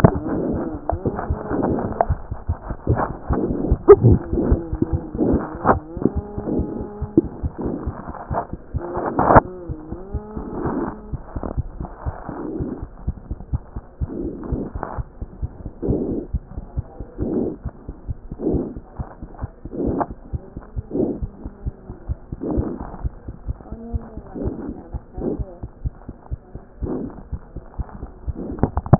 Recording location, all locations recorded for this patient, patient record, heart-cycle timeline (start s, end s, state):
aortic valve (AV)
aortic valve (AV)+mitral valve (MV)
#Age: Child
#Sex: Female
#Height: 76.0 cm
#Weight: 9.1 kg
#Pregnancy status: False
#Murmur: Absent
#Murmur locations: nan
#Most audible location: nan
#Systolic murmur timing: nan
#Systolic murmur shape: nan
#Systolic murmur grading: nan
#Systolic murmur pitch: nan
#Systolic murmur quality: nan
#Diastolic murmur timing: nan
#Diastolic murmur shape: nan
#Diastolic murmur grading: nan
#Diastolic murmur pitch: nan
#Diastolic murmur quality: nan
#Outcome: Normal
#Campaign: 2014 screening campaign
0.00	12.97	unannotated
12.97	13.06	diastole
13.06	13.16	S1
13.16	13.28	systole
13.28	13.38	S2
13.38	13.52	diastole
13.52	13.62	S1
13.62	13.74	systole
13.74	13.82	S2
13.82	14.02	diastole
14.02	14.10	S1
14.10	14.22	systole
14.22	14.32	S2
14.32	14.50	diastole
14.50	14.62	S1
14.62	14.76	systole
14.76	14.82	S2
14.82	14.98	diastole
14.98	15.06	S1
15.06	15.22	systole
15.22	15.28	S2
15.28	15.42	diastole
15.42	15.50	S1
15.50	15.62	systole
15.62	15.70	S2
15.70	15.85	diastole
15.85	28.99	unannotated